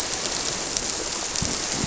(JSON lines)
{"label": "biophony", "recorder": "SoundTrap 300"}